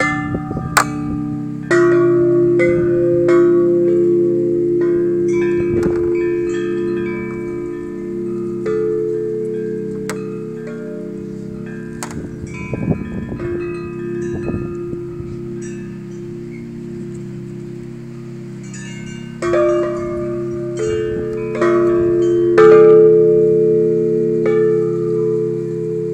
Is there more than one bell sounding?
yes